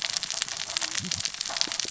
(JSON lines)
{"label": "biophony, cascading saw", "recorder": "SoundTrap 600 or HydroMoth"}